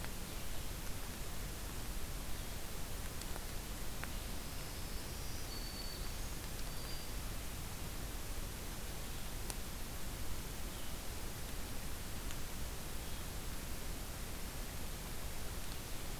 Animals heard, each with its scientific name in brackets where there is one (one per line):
Blue-headed Vireo (Vireo solitarius)
Black-throated Green Warbler (Setophaga virens)